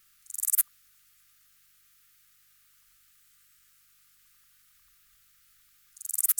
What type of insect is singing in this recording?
orthopteran